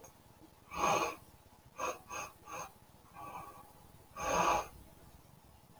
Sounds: Sniff